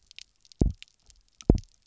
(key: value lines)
label: biophony, double pulse
recorder: SoundTrap 300